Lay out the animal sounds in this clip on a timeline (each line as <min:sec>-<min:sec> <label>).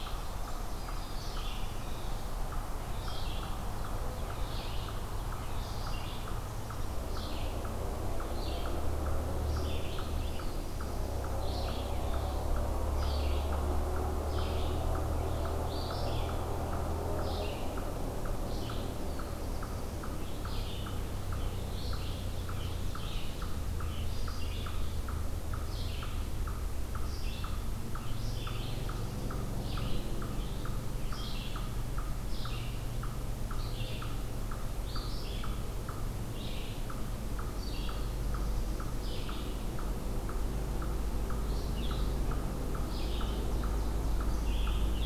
0:00.0-0:02.2 Ovenbird (Seiurus aurocapilla)
0:00.0-0:42.1 Red-eyed Vireo (Vireo olivaceus)
0:00.0-0:43.3 Eastern Chipmunk (Tamias striatus)
0:18.5-0:20.1 Black-throated Blue Warbler (Setophaga caerulescens)
0:21.7-0:23.5 Ovenbird (Seiurus aurocapilla)
0:42.7-0:45.1 Red-eyed Vireo (Vireo olivaceus)
0:43.0-0:44.5 Ovenbird (Seiurus aurocapilla)
0:43.6-0:45.1 Eastern Chipmunk (Tamias striatus)